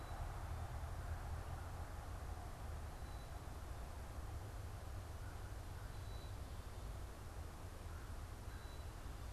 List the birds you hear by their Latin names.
Poecile atricapillus